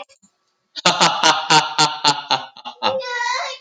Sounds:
Laughter